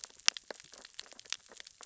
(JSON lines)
{"label": "biophony, sea urchins (Echinidae)", "recorder": "SoundTrap 600 or HydroMoth"}